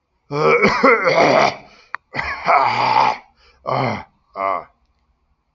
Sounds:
Throat clearing